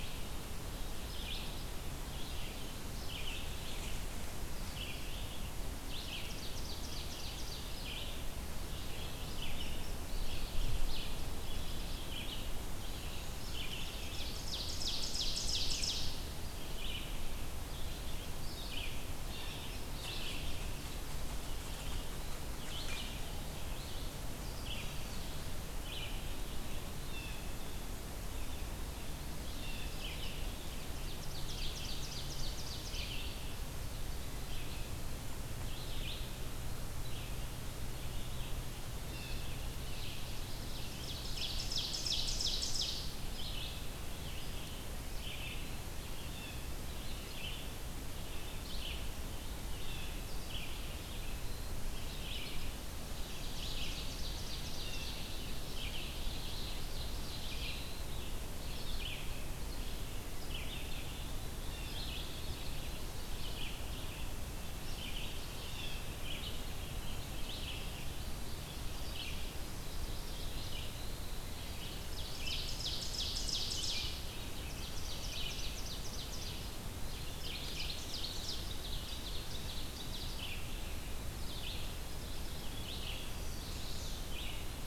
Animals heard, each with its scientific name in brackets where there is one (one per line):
Mourning Warbler (Geothlypis philadelphia)
Blue Jay (Cyanocitta cristata)
Red-eyed Vireo (Vireo olivaceus)
Chestnut-sided Warbler (Setophaga pensylvanica)
Ovenbird (Seiurus aurocapilla)